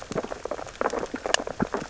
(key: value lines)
label: biophony, sea urchins (Echinidae)
recorder: SoundTrap 600 or HydroMoth